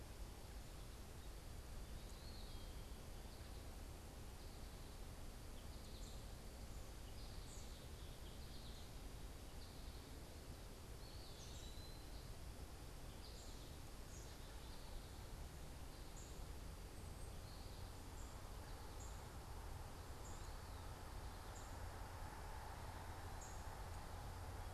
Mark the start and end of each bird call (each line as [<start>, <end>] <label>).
[2.16, 2.86] Eastern Wood-Pewee (Contopus virens)
[10.76, 12.16] Eastern Wood-Pewee (Contopus virens)
[11.16, 23.66] unidentified bird
[12.96, 13.56] American Goldfinch (Spinus tristis)